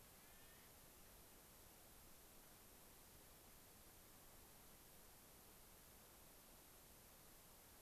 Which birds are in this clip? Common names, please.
Clark's Nutcracker